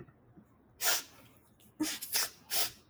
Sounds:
Sniff